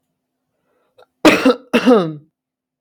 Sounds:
Cough